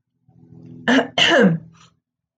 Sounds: Throat clearing